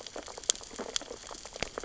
{"label": "biophony, sea urchins (Echinidae)", "recorder": "SoundTrap 600 or HydroMoth"}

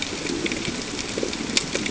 {"label": "ambient", "recorder": "HydroMoth"}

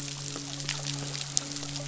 {"label": "biophony, midshipman", "recorder": "SoundTrap 500"}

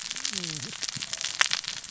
{"label": "biophony, cascading saw", "recorder": "SoundTrap 600 or HydroMoth"}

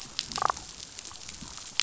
{"label": "biophony, damselfish", "recorder": "SoundTrap 500"}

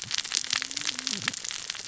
{"label": "biophony, cascading saw", "recorder": "SoundTrap 600 or HydroMoth"}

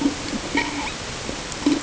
{"label": "ambient", "recorder": "HydroMoth"}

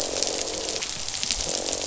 {"label": "biophony, croak", "recorder": "SoundTrap 500"}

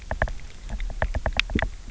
{"label": "biophony, knock", "recorder": "SoundTrap 300"}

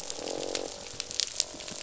{"label": "biophony, croak", "recorder": "SoundTrap 500"}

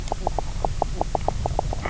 {"label": "biophony, knock croak", "recorder": "SoundTrap 300"}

